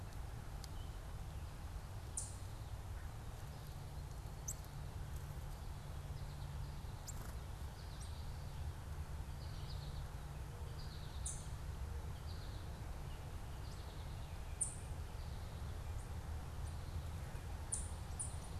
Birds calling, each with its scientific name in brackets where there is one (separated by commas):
Ovenbird (Seiurus aurocapilla), American Goldfinch (Spinus tristis)